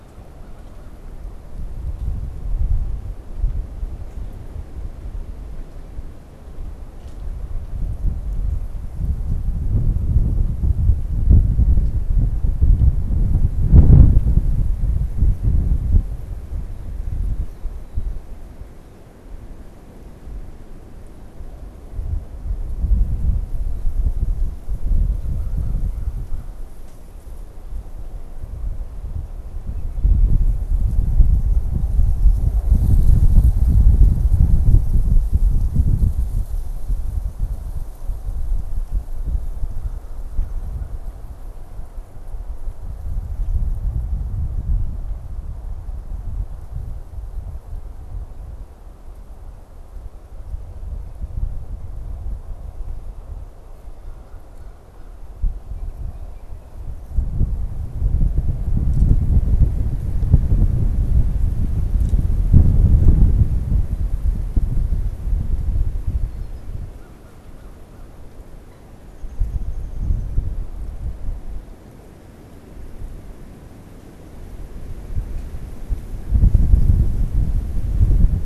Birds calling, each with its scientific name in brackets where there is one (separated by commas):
Downy Woodpecker (Dryobates pubescens), American Crow (Corvus brachyrhynchos)